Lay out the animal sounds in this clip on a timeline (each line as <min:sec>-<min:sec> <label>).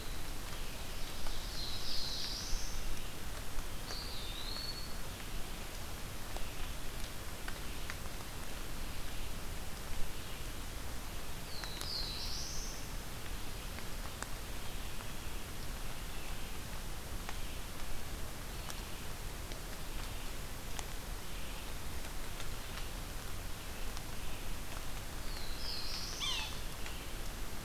0:00.0-0:27.6 Red-eyed Vireo (Vireo olivaceus)
0:00.2-0:02.2 Ovenbird (Seiurus aurocapilla)
0:01.4-0:02.8 Black-throated Blue Warbler (Setophaga caerulescens)
0:03.7-0:05.2 Eastern Wood-Pewee (Contopus virens)
0:11.2-0:12.9 Black-throated Blue Warbler (Setophaga caerulescens)
0:25.1-0:26.5 Black-throated Blue Warbler (Setophaga caerulescens)
0:26.1-0:26.5 Yellow-bellied Sapsucker (Sphyrapicus varius)